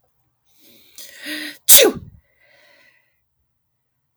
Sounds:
Sneeze